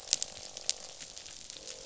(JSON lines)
{"label": "biophony, croak", "recorder": "SoundTrap 500"}